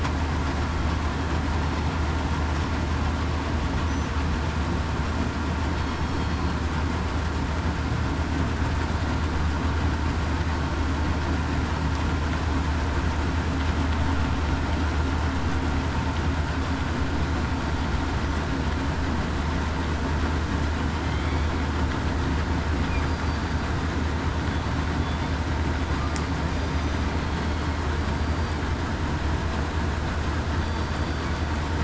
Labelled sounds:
27.3	27.8	killer whale, southern resident, 4.2 to 4.4 kHz
28.1	28.6	killer whale, southern resident, 4.6 to 4.7 kHz
30.6	31.3	killer whale, southern resident, 4.5 to 4.7 kHz

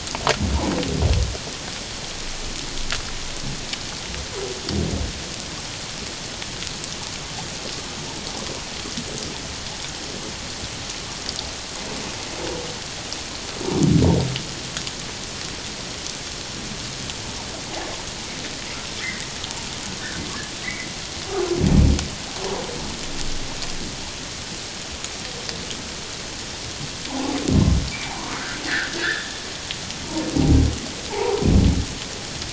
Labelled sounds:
20.6	20.9	humpback whale, 1.9 to 2.3 kHz
27.1	27.4	humpback whale, 0.78 to 1.1 kHz
28.0	29.4	humpback whale, 0.78 to 3.6 kHz
31.1	31.5	humpback whale, 0.78 to 1.1 kHz

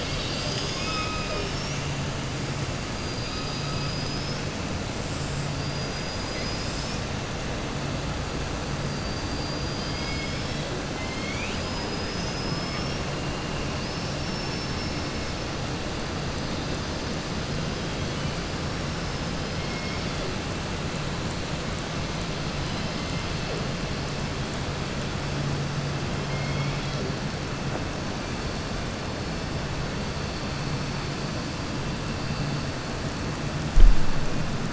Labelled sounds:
3.1	4.4	killer whale, southern resident, 3.8 to 5.5 kHz
13.7	15.3	killer whale, southern resident, 4.4 to 6.0 kHz
26.2	27.0	killer whale, southern resident, 2.0 to 4.7 kHz

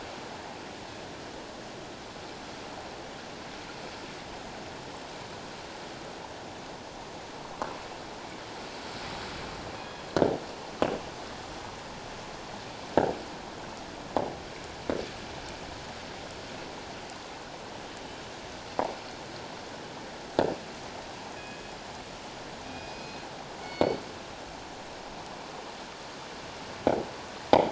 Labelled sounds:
9.7	10.1	killer whale, northern resident, G clan, 2.4 to 3.4 kHz
21.4	21.7	killer whale, northern resident, G clan, 2.4 to 2.6 kHz
22.6	24.1	killer whale, northern resident, G clan, 2.2 to 5.1 kHz

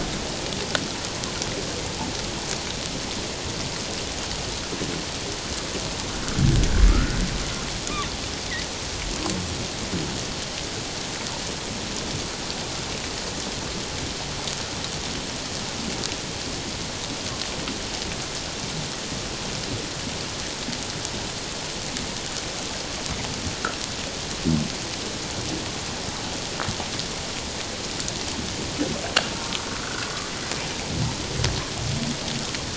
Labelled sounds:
6.9	7.2	humpback whale, 1.2 to 1.6 kHz
29.4	30.1	humpback whale, 1.0 to 1.6 kHz

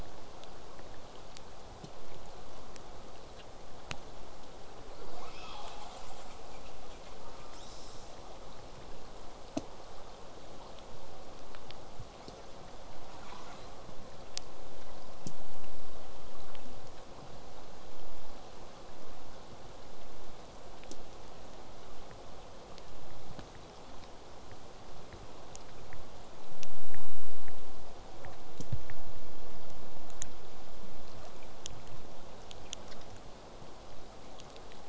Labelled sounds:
7.4	8.3	killer whale, southern resident, J pod, 0.96 to 8.0 kHz
13.1	13.7	killer whale, southern resident, J pod, call S10, 0.33 to 8.0 kHz
29.9	34.8	vessel noise, 0 to 8.0 kHz

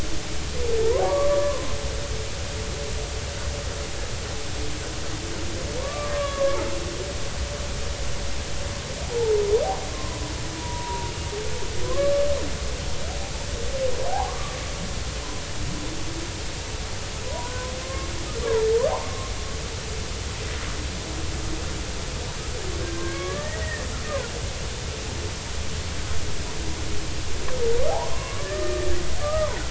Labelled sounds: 1.0	1.7	humpback whale, 0.96 to 1.2 kHz
5.8	6.6	humpback whale, 0.93 to 1.7 kHz
10.6	11.1	humpback whale, 0.90 to 1.0 kHz
11.9	12.1	humpback whale, 0.99 to 1.2 kHz
14.1	14.6	humpback whale, 0.80 to 1.3 kHz
17.2	19.3	humpback whale, 0.80 to 1.6 kHz
22.9	23.8	humpback whale, 1.0 to 2.0 kHz
28.1	29.6	humpback whale, 0.90 to 2.0 kHz

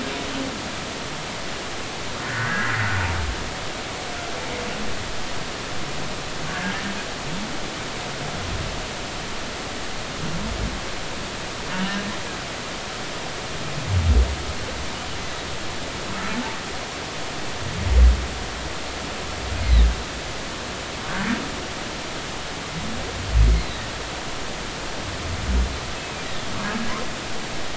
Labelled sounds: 2.3	2.8	humpback whale, 1.3 to 2.0 kHz
6.5	6.8	humpback whale, 1.4 to 1.8 kHz
16.3	16.6	humpback whale, 0.83 to 0.96 kHz
19.6	19.9	humpback whale, 3.5 to 4.3 kHz
23.5	23.8	humpback whale, 3.6 to 4.3 kHz

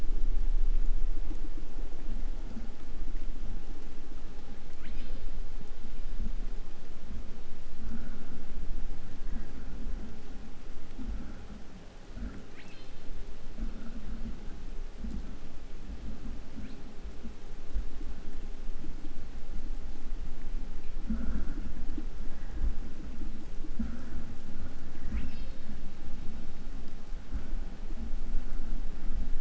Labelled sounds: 4.6	6.8	killer whale, southern resident, 0.98 to 5.2 kHz
12.5	13.3	killer whale, southern resident, 1.1 to 6.5 kHz
16.5	16.9	killer whale, southern resident, 0.98 to 4.9 kHz
25.1	25.8	killer whale, southern resident, 0.70 to 6.0 kHz

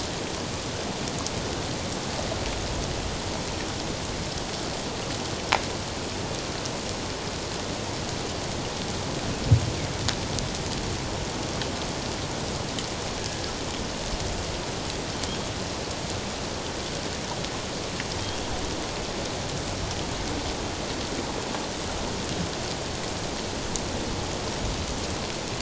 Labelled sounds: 13.2	13.5	humpback whale, 1.6 to 1.7 kHz

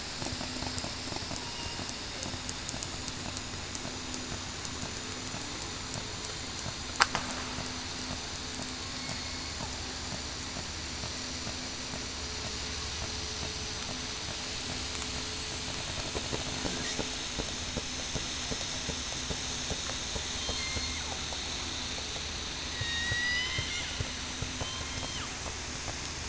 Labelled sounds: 1.4	1.8	killer whale, southern resident, 2.8 to 2.9 kHz
9.0	9.4	killer whale, southern resident, 2.1 to 2.3 kHz
20.5	21.0	killer whale, southern resident, 2.0 to 2.2 kHz
22.7	23.7	killer whale, southern resident, 1.8 to 7.9 kHz

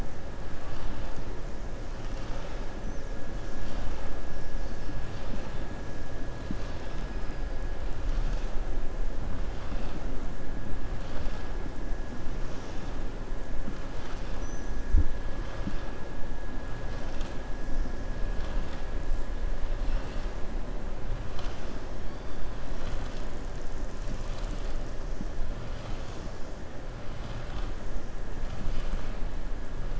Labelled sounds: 13.9	14.8	killer whale, southern resident, 1.2 to 6.7 kHz

